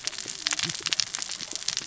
{"label": "biophony, cascading saw", "recorder": "SoundTrap 600 or HydroMoth"}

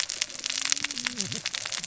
{"label": "biophony, cascading saw", "recorder": "SoundTrap 600 or HydroMoth"}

